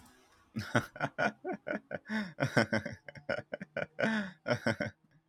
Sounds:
Laughter